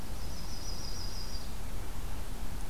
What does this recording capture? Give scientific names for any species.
Setophaga coronata